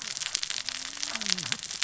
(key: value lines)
label: biophony, cascading saw
recorder: SoundTrap 600 or HydroMoth